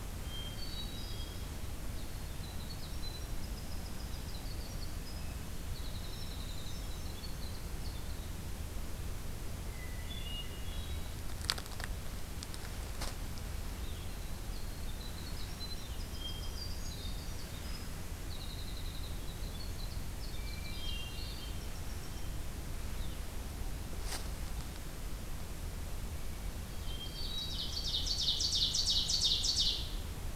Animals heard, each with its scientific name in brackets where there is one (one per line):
Ovenbird (Seiurus aurocapilla)
Winter Wren (Troglodytes hiemalis)
Hermit Thrush (Catharus guttatus)